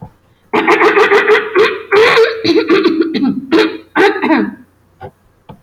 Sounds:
Throat clearing